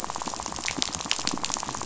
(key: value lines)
label: biophony, rattle
recorder: SoundTrap 500